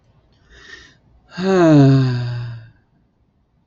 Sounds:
Sigh